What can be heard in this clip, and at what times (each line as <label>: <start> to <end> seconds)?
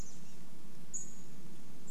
Chestnut-backed Chickadee call: 0 to 2 seconds
Pacific-slope Flycatcher call: 0 to 2 seconds
insect buzz: 0 to 2 seconds